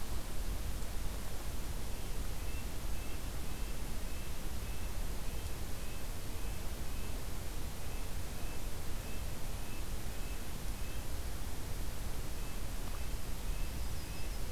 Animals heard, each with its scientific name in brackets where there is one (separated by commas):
Red-breasted Nuthatch (Sitta canadensis), Yellow-rumped Warbler (Setophaga coronata)